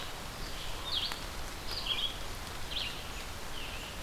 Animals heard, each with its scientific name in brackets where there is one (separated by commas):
Scarlet Tanager (Piranga olivacea), Red-eyed Vireo (Vireo olivaceus)